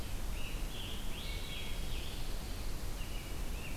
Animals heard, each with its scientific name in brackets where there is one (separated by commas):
Red-eyed Vireo (Vireo olivaceus), Wood Thrush (Hylocichla mustelina), Scarlet Tanager (Piranga olivacea), Pine Warbler (Setophaga pinus)